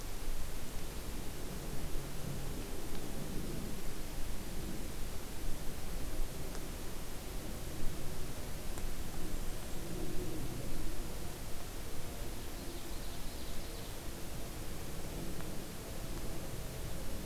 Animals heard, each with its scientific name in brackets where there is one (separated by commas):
Blackburnian Warbler (Setophaga fusca), Ovenbird (Seiurus aurocapilla)